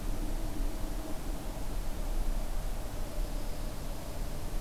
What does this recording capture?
Dark-eyed Junco